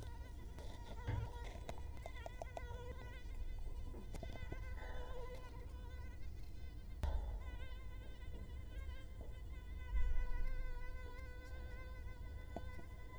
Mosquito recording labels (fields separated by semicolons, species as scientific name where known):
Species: Culex quinquefasciatus; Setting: cup